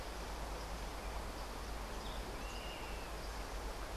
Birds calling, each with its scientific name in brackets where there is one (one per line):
Yellow-bellied Elaenia (Elaenia flavogaster)